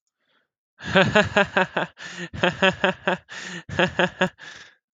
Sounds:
Laughter